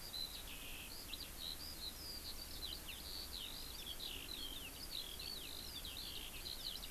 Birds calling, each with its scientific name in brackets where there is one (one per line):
Eurasian Skylark (Alauda arvensis)